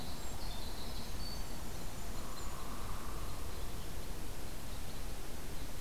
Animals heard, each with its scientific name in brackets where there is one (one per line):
Red Crossbill (Loxia curvirostra)
Hairy Woodpecker (Dryobates villosus)
Winter Wren (Troglodytes hiemalis)